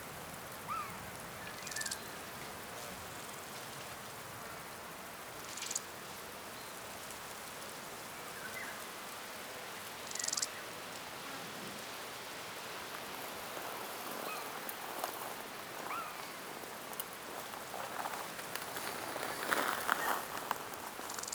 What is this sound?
Albarracinia zapaterii, an orthopteran